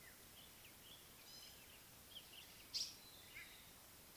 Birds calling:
African Paradise-Flycatcher (Terpsiphone viridis), Gray-backed Camaroptera (Camaroptera brevicaudata)

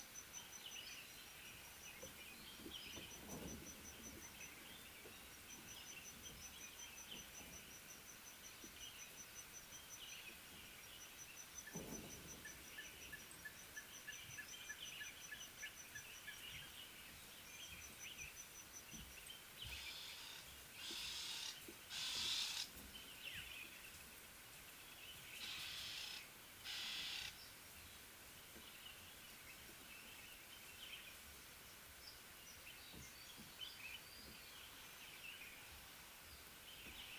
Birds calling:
Ring-necked Dove (Streptopelia capicola), Red-fronted Tinkerbird (Pogoniulus pusillus)

